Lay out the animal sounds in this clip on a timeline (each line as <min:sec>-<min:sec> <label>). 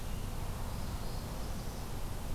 0:00.6-0:01.9 Northern Parula (Setophaga americana)